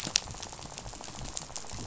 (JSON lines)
{"label": "biophony, rattle", "recorder": "SoundTrap 500"}